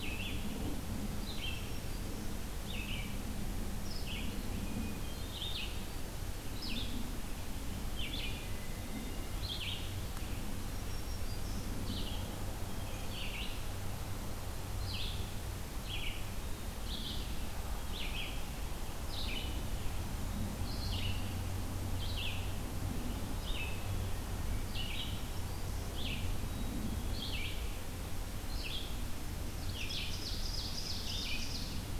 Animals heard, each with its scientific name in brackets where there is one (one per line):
Red-eyed Vireo (Vireo olivaceus)
Black-capped Chickadee (Poecile atricapillus)
Black-throated Green Warbler (Setophaga virens)
Hermit Thrush (Catharus guttatus)
Ovenbird (Seiurus aurocapilla)